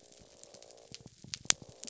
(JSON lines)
{"label": "biophony", "recorder": "SoundTrap 300"}